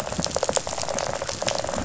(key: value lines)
label: biophony, rattle response
recorder: SoundTrap 500